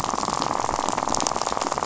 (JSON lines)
{"label": "biophony, rattle", "recorder": "SoundTrap 500"}